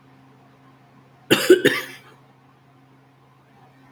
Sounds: Throat clearing